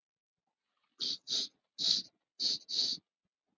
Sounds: Sniff